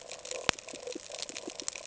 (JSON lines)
{"label": "ambient", "recorder": "HydroMoth"}